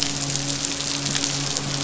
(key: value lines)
label: biophony, midshipman
recorder: SoundTrap 500